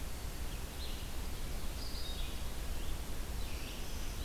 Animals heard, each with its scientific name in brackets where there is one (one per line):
Black-throated Green Warbler (Setophaga virens)
Red-eyed Vireo (Vireo olivaceus)